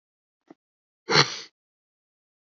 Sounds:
Sniff